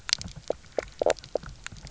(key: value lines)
label: biophony, knock croak
recorder: SoundTrap 300